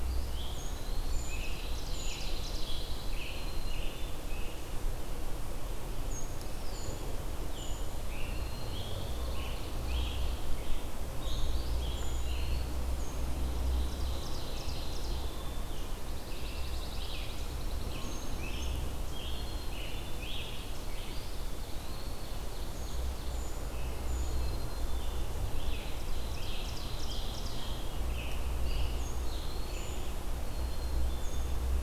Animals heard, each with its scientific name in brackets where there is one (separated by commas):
Brown Creeper (Certhia americana), Pine Warbler (Setophaga pinus), Eastern Wood-Pewee (Contopus virens), Ovenbird (Seiurus aurocapilla), Scarlet Tanager (Piranga olivacea), Black-capped Chickadee (Poecile atricapillus)